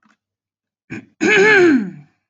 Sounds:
Throat clearing